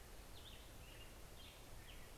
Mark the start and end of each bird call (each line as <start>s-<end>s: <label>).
0.0s-2.2s: Black-headed Grosbeak (Pheucticus melanocephalus)